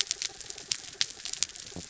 {"label": "anthrophony, mechanical", "recorder": "SoundTrap 300"}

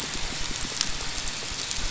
{"label": "biophony", "recorder": "SoundTrap 500"}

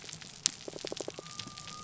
{"label": "biophony", "recorder": "SoundTrap 300"}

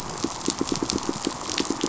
{"label": "biophony, pulse", "recorder": "SoundTrap 500"}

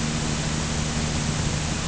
{"label": "anthrophony, boat engine", "recorder": "HydroMoth"}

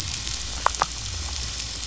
{"label": "biophony", "recorder": "SoundTrap 500"}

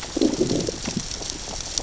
{"label": "biophony, growl", "recorder": "SoundTrap 600 or HydroMoth"}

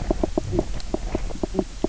{"label": "biophony, knock croak", "recorder": "SoundTrap 300"}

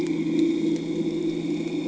{"label": "anthrophony, boat engine", "recorder": "HydroMoth"}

